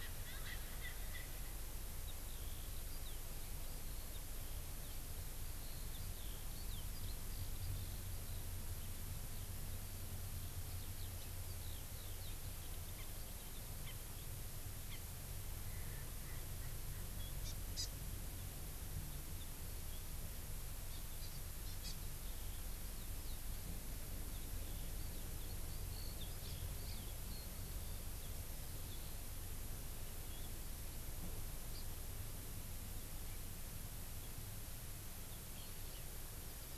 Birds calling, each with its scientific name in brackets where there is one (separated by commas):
Erckel's Francolin (Pternistis erckelii), Eurasian Skylark (Alauda arvensis), Hawaii Amakihi (Chlorodrepanis virens)